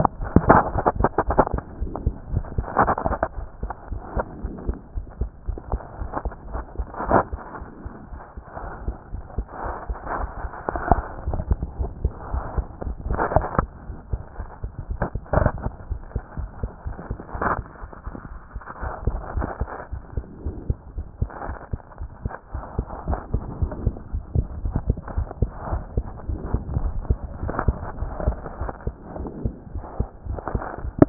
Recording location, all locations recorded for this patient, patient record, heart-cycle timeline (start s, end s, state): mitral valve (MV)
aortic valve (AV)+pulmonary valve (PV)+tricuspid valve (TV)+mitral valve (MV)
#Age: Child
#Sex: Male
#Height: 124.0 cm
#Weight: 23.6 kg
#Pregnancy status: False
#Murmur: Absent
#Murmur locations: nan
#Most audible location: nan
#Systolic murmur timing: nan
#Systolic murmur shape: nan
#Systolic murmur grading: nan
#Systolic murmur pitch: nan
#Systolic murmur quality: nan
#Diastolic murmur timing: nan
#Diastolic murmur shape: nan
#Diastolic murmur grading: nan
#Diastolic murmur pitch: nan
#Diastolic murmur quality: nan
#Outcome: Normal
#Campaign: 2014 screening campaign
0.00	3.38	unannotated
3.38	3.48	S1
3.48	3.62	systole
3.62	3.70	S2
3.70	3.90	diastole
3.90	4.02	S1
4.02	4.16	systole
4.16	4.24	S2
4.24	4.42	diastole
4.42	4.54	S1
4.54	4.68	systole
4.68	4.76	S2
4.76	4.96	diastole
4.96	5.06	S1
5.06	5.21	systole
5.21	5.30	S2
5.30	5.48	diastole
5.48	5.58	S1
5.58	5.72	systole
5.72	5.80	S2
5.80	6.00	diastole
6.00	6.10	S1
6.10	6.24	systole
6.24	6.32	S2
6.32	6.54	diastole
6.54	6.64	S1
6.64	6.78	systole
6.78	6.86	S2
6.86	7.08	diastole
7.08	31.09	unannotated